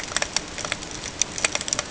{"label": "ambient", "recorder": "HydroMoth"}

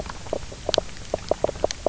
{"label": "biophony, knock croak", "recorder": "SoundTrap 300"}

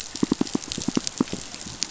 {"label": "biophony, pulse", "recorder": "SoundTrap 500"}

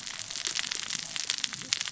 {"label": "biophony, cascading saw", "recorder": "SoundTrap 600 or HydroMoth"}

